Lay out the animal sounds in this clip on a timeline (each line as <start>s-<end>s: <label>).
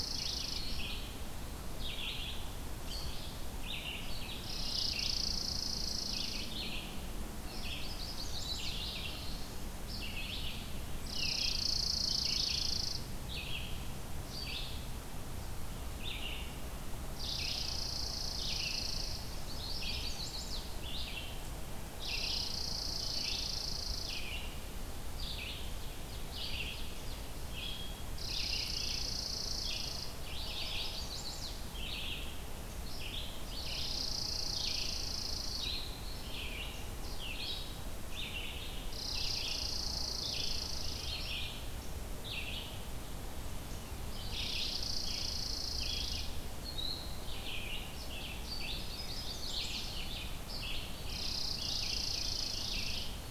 0.0s-0.7s: Chipping Sparrow (Spizella passerina)
0.0s-41.6s: Red-eyed Vireo (Vireo olivaceus)
4.4s-6.5s: Chipping Sparrow (Spizella passerina)
7.7s-9.0s: Chimney Swift (Chaetura pelagica)
11.0s-13.1s: Chipping Sparrow (Spizella passerina)
17.2s-19.3s: Chipping Sparrow (Spizella passerina)
19.4s-20.7s: Chimney Swift (Chaetura pelagica)
22.0s-24.3s: Chipping Sparrow (Spizella passerina)
25.4s-27.5s: Ovenbird (Seiurus aurocapilla)
28.1s-30.2s: Chipping Sparrow (Spizella passerina)
30.2s-31.5s: Chimney Swift (Chaetura pelagica)
33.6s-35.7s: Chipping Sparrow (Spizella passerina)
38.9s-41.2s: Chipping Sparrow (Spizella passerina)
42.1s-53.3s: Red-eyed Vireo (Vireo olivaceus)
44.4s-46.3s: Chipping Sparrow (Spizella passerina)
48.5s-49.9s: Chimney Swift (Chaetura pelagica)
51.1s-53.0s: Chipping Sparrow (Spizella passerina)